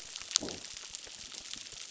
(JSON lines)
{"label": "biophony", "recorder": "SoundTrap 600"}